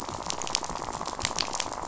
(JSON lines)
{"label": "biophony, rattle", "recorder": "SoundTrap 500"}